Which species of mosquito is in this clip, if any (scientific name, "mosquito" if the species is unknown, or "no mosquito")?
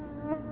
Culex tarsalis